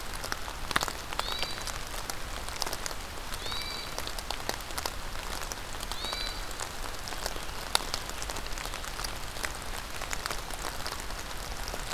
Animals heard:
Hermit Thrush (Catharus guttatus)

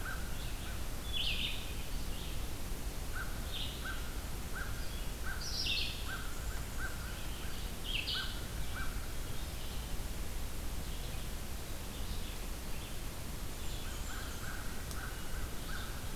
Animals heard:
American Crow (Corvus brachyrhynchos)
Red-eyed Vireo (Vireo olivaceus)
Blackburnian Warbler (Setophaga fusca)

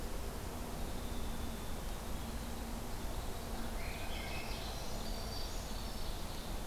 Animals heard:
Winter Wren (Troglodytes hiemalis)
Black-throated Green Warbler (Setophaga virens)
Ovenbird (Seiurus aurocapilla)
Swainson's Thrush (Catharus ustulatus)

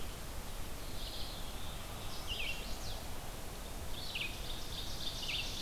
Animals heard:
Chestnut-sided Warbler (Setophaga pensylvanica)
Red-eyed Vireo (Vireo olivaceus)
Ovenbird (Seiurus aurocapilla)

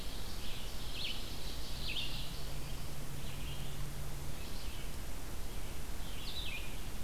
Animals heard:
Red-eyed Vireo (Vireo olivaceus)
Ovenbird (Seiurus aurocapilla)

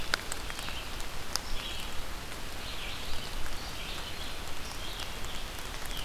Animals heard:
Red-eyed Vireo (Vireo olivaceus)

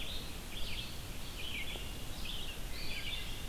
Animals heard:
Red-eyed Vireo (Vireo olivaceus)
Eastern Wood-Pewee (Contopus virens)

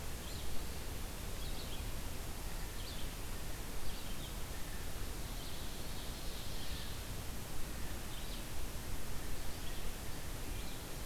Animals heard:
Blue Jay (Cyanocitta cristata)
Ovenbird (Seiurus aurocapilla)
Red-eyed Vireo (Vireo olivaceus)

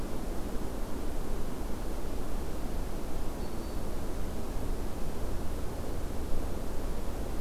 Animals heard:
Black-throated Green Warbler (Setophaga virens)

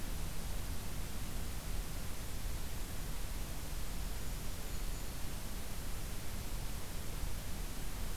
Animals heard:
Golden-crowned Kinglet (Regulus satrapa)

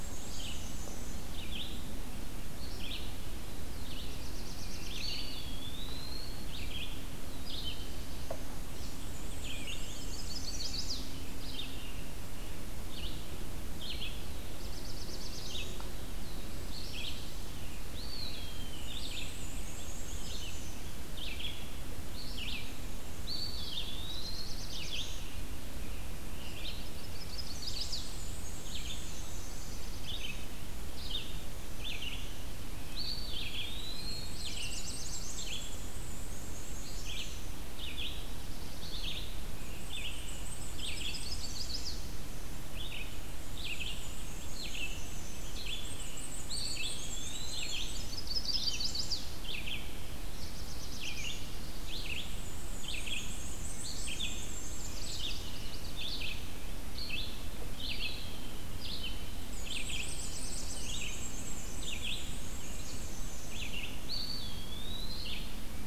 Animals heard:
Chestnut-sided Warbler (Setophaga pensylvanica)
Eastern Wood-Pewee (Contopus virens)
Red-eyed Vireo (Vireo olivaceus)
unidentified call
Black-throated Blue Warbler (Setophaga caerulescens)
Black-and-white Warbler (Mniotilta varia)

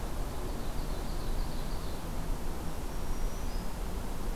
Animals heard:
Ovenbird (Seiurus aurocapilla)
Black-throated Green Warbler (Setophaga virens)

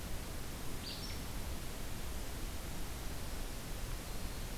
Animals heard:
Acadian Flycatcher (Empidonax virescens)

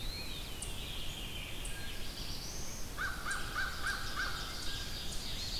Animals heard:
Ovenbird (Seiurus aurocapilla)
Eastern Wood-Pewee (Contopus virens)
American Crow (Corvus brachyrhynchos)
Veery (Catharus fuscescens)
Red-eyed Vireo (Vireo olivaceus)
Black-throated Blue Warbler (Setophaga caerulescens)
Blue Jay (Cyanocitta cristata)

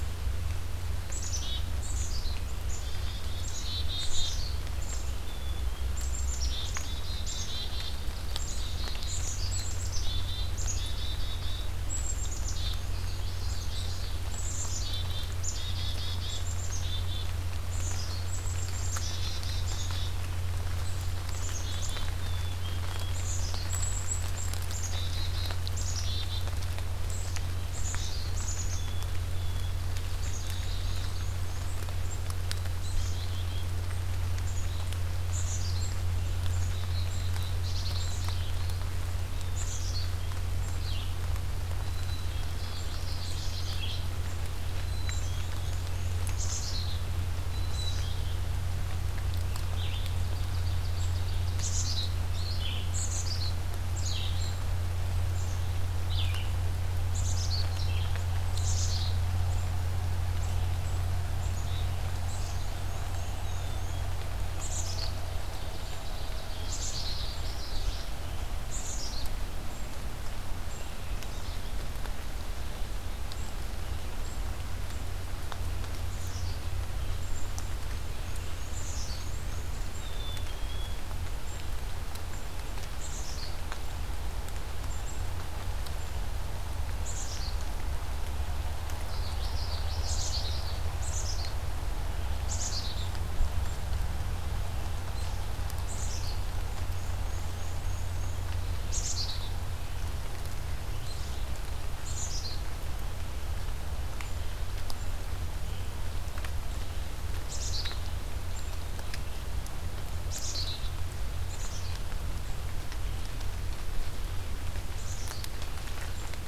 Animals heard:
Black-and-white Warbler (Mniotilta varia)
Common Yellowthroat (Geothlypis trichas)
Red-eyed Vireo (Vireo olivaceus)
Ovenbird (Seiurus aurocapilla)
Black-capped Chickadee (Poecile atricapillus)

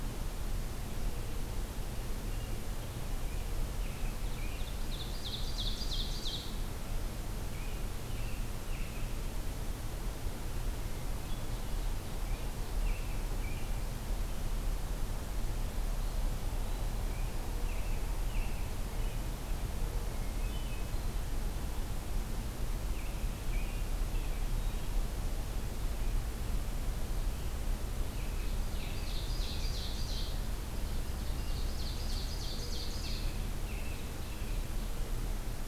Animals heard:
American Robin (Turdus migratorius)
Ovenbird (Seiurus aurocapilla)
Hermit Thrush (Catharus guttatus)

